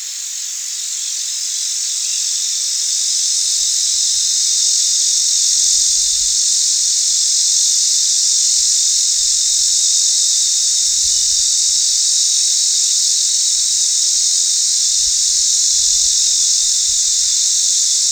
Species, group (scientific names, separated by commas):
Neotibicen lyricen, Cicadidae